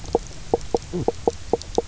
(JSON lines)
{"label": "biophony, knock croak", "recorder": "SoundTrap 300"}